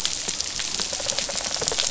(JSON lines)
{"label": "biophony, rattle response", "recorder": "SoundTrap 500"}